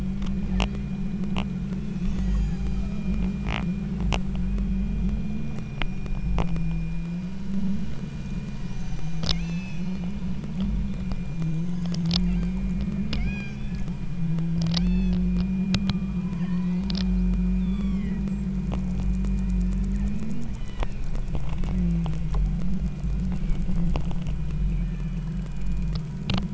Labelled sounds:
1.6	3.4	killer whale, southern Alaska resident, 0.41 to 8.0 kHz
9.4	10.9	killer whale, southern Alaska resident, 1.5 to 8.0 kHz
12.2	12.6	killer whale, southern Alaska resident, 1.4 to 4.9 kHz
13.2	14.0	killer whale, southern Alaska resident, 1.4 to 8.0 kHz
14.8	15.4	killer whale, southern Alaska resident, 0.71 to 8.0 kHz
16.2	16.9	killer whale, southern Alaska resident, 0.75 to 2.2 kHz
17.5	18.5	killer whale, southern Alaska resident, 0.96 to 8.0 kHz
19.9	21.1	killer whale, southern Alaska resident, 1.6 to 4.1 kHz
24.7	25.3	killer whale, southern Alaska resident, 1.6 to 3.3 kHz

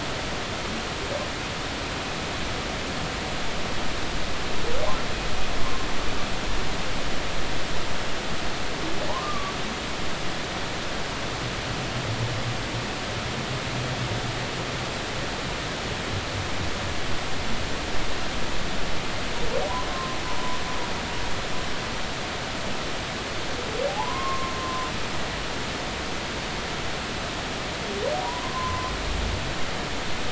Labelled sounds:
9.1	9.5	humpback whale, 0.80 to 1.2 kHz
19.9	20.6	humpback whale, 0.93 to 1.1 kHz
23.9	24.9	humpback whale, 0.80 to 1.2 kHz
28.2	28.9	humpback whale, 0.90 to 1.1 kHz

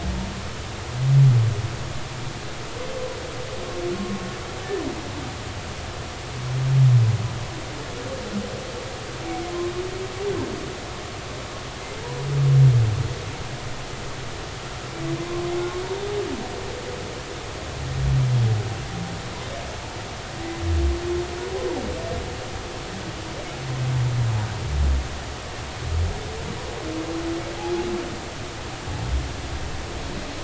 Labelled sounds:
3.9	4.2	humpback whale, 1.0 to 1.1 kHz
9.5	9.7	humpback whale, 0.99 to 1.1 kHz

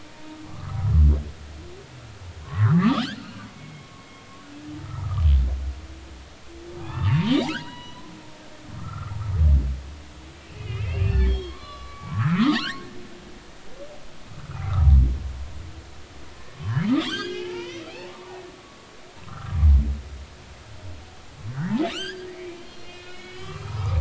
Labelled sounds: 0.0	1.0	humpback whale, 0.86 to 1.4 kHz
2.4	4.1	humpback whale, 0.99 to 2.3 kHz
4.8	5.2	humpback whale, 0.93 to 1.4 kHz
6.8	9.2	humpback whale, 0.80 to 4.1 kHz
10.6	12.9	humpback whale, 0.80 to 5.3 kHz
14.5	14.8	humpback whale, 1.9 to 2.5 kHz
16.5	18.4	humpback whale, 0.80 to 5.2 kHz
19.3	19.6	humpback whale, 1.2 to 1.5 kHz
21.5	23.9	humpback whale, 0.90 to 5.1 kHz

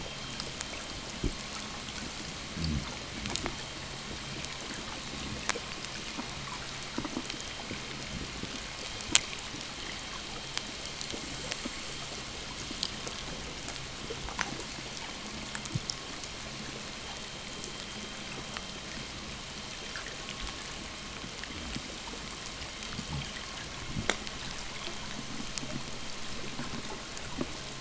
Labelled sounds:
16.3	22.6	vessel noise, 0 to 3.4 kHz

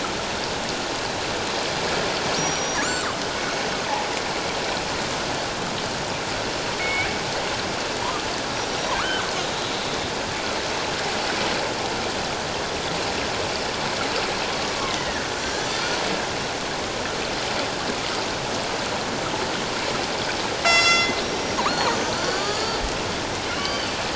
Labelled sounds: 2.4	2.9	killer whale, northern resident, G clan, 5.6 to 5.8 kHz
6.8	7.1	killer whale, northern resident, G clan, 2.1 to 2.4 kHz
9.0	9.3	killer whale, northern resident, G clan, 1.1 to 1.7 kHz
14.9	16.0	killer whale, northern resident, G clan, 1.3 to 2.2 kHz
20.6	22.8	killer whale, northern resident, G clan, 0.88 to 7.6 kHz
23.5	23.9	killer whale, northern resident, G clan, 2.8 to 4.8 kHz

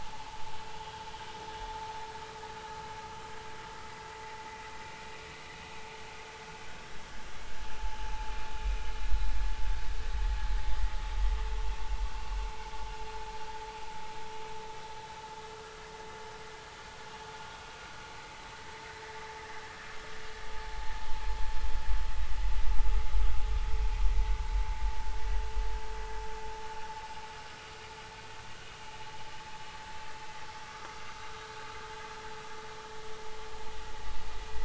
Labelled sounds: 30.7	31.0	vessel noise, 1.1 to 1.4 kHz

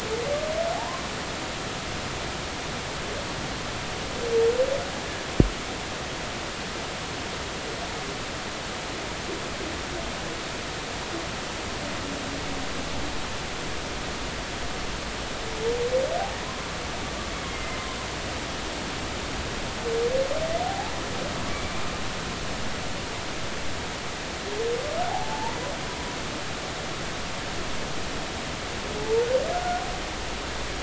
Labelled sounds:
17.5	18.0	humpback whale, 0.99 to 2.2 kHz
20.6	21.8	humpback whale, 0.80 to 2.4 kHz
25.1	25.6	humpback whale, 0.80 to 1.0 kHz
30.0	30.3	humpback whale, 0.83 to 0.96 kHz

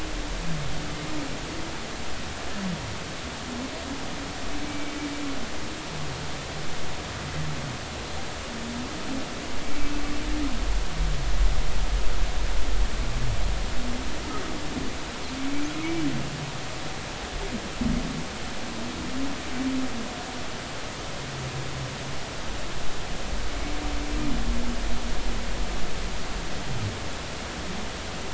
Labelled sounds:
4.6	4.9	humpback whale, 2.2 to 2.3 kHz
15.8	16.0	humpback whale, 2.1 to 2.4 kHz

